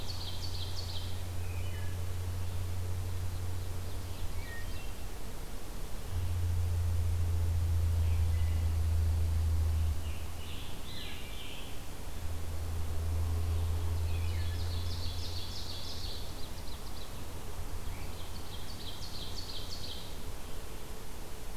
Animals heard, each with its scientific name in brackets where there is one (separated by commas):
Scarlet Tanager (Piranga olivacea), Wood Thrush (Hylocichla mustelina), Ovenbird (Seiurus aurocapilla)